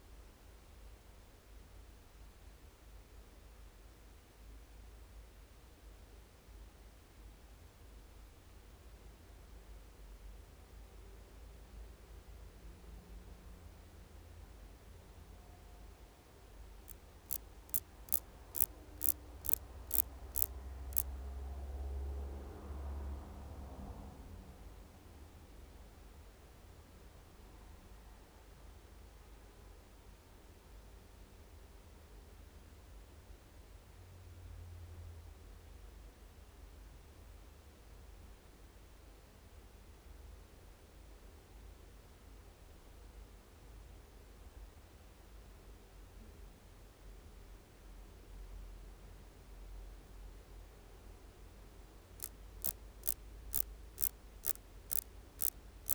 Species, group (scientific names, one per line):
Dociostaurus jagoi
Orthoptera